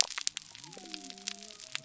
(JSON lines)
{"label": "biophony", "recorder": "SoundTrap 300"}